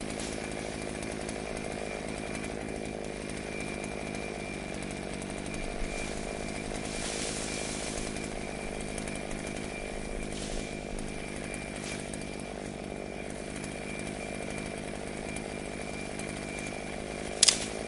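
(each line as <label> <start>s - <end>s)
A chainsaw engine runs at a consistent low throttle. 0.0s - 17.4s
Wood cracking followed by a chainsaw. 17.4s - 17.6s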